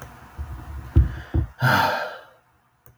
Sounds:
Sigh